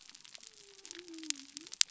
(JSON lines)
{"label": "biophony", "recorder": "SoundTrap 300"}